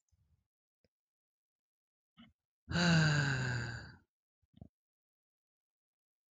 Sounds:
Sigh